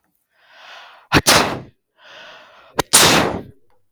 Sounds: Sneeze